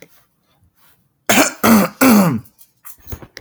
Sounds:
Throat clearing